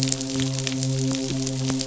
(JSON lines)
{"label": "biophony, midshipman", "recorder": "SoundTrap 500"}